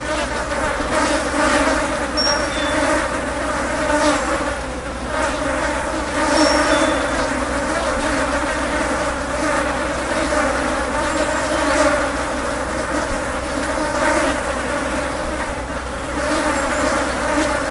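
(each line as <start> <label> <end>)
0.0 Insects buzzing rapidly. 17.7
2.2 Many insects buzz while a bird chirps. 3.0
6.1 Many insects buzz while a bird chirps. 7.0
11.0 Many insects are buzzing while some birds are chirping. 12.2
16.0 A large number of insects are buzzing while some birds are chirping. 17.7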